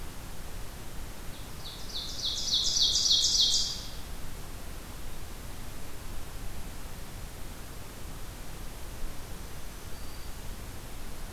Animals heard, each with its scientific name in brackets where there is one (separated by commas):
Ovenbird (Seiurus aurocapilla), Black-throated Green Warbler (Setophaga virens)